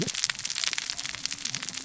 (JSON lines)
{"label": "biophony, cascading saw", "recorder": "SoundTrap 600 or HydroMoth"}